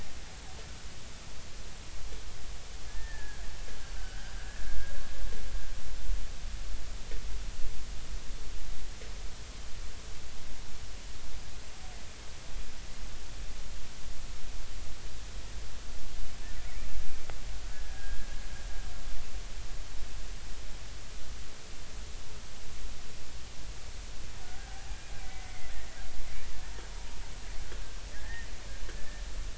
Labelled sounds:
2.9	3.4	killer whale, Bigg's (transient), 1.5 to 1.9 kHz
4.0	4.3	killer whale, Bigg's (transient), 1.4 to 1.7 kHz
17.7	18.3	killer whale, Bigg's (transient), 1.6 to 1.7 kHz
24.7	25.7	killer whale, Bigg's (transient), 0.80 to 2.3 kHz
28.1	28.5	killer whale, Bigg's (transient), 1.6 to 1.9 kHz
29.0	29.2	killer whale, Bigg's (transient), 1.7 to 1.9 kHz

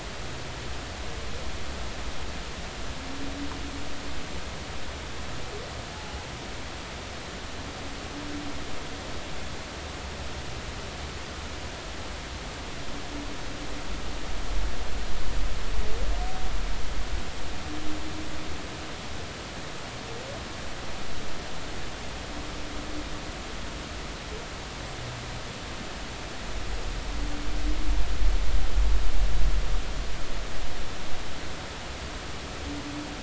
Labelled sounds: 5.9	6.3	humpback whale, 0.80 to 1.0 kHz

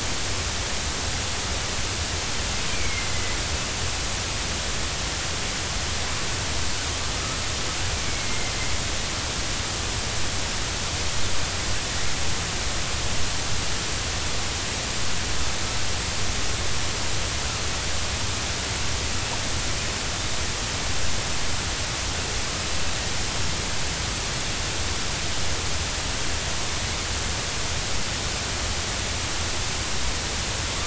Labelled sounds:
2.7	3.4	killer whale, northern resident, 2.0 to 2.5 kHz
8.0	8.5	killer whale, northern resident, 2.0 to 2.3 kHz

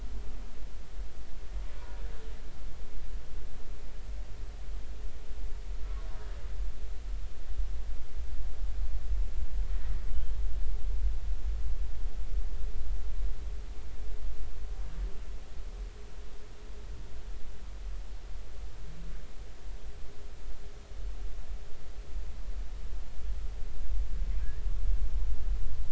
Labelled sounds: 1.8	2.0	humpback whale, 0.93 to 1.1 kHz

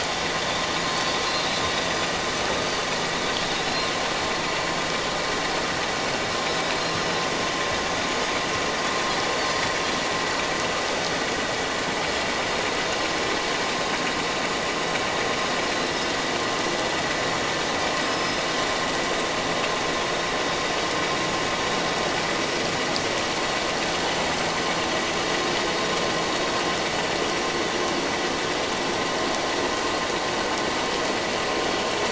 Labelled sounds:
1.2	1.7	Pacific white-sided dolphin, 3.6 to 4.2 kHz
18.0	18.4	Pacific white-sided dolphin, 4.9 to 5.2 kHz

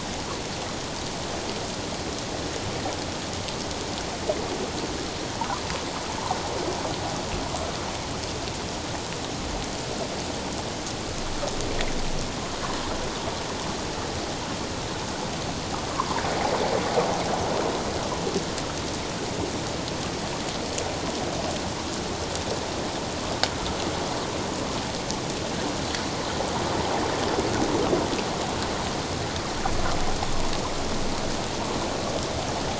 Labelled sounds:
15.9	16.2	water noise, 0.88 to 1.2 kHz

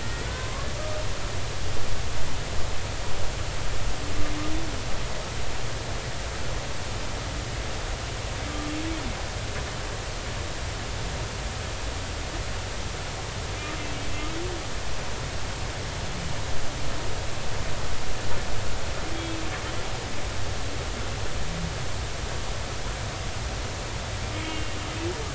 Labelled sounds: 0.0	0.7	humpback whale, 0.96 to 2.0 kHz
19.1	19.4	humpback whale, 3.2 to 3.4 kHz
24.3	24.8	humpback whale, 2.8 to 3.2 kHz

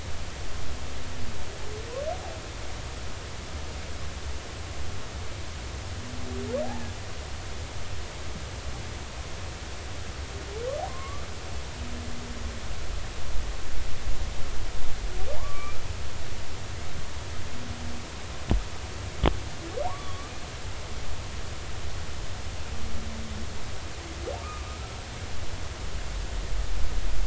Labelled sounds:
10.9	11.3	humpback whale, 0.93 to 1.2 kHz
15.4	15.8	humpback whale, 0.80 to 2.5 kHz
19.9	20.3	humpback whale, 0.86 to 1.2 kHz
24.4	24.8	humpback whale, 1.1 to 1.3 kHz

